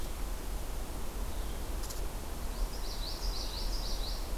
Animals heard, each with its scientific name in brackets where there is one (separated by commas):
Common Yellowthroat (Geothlypis trichas)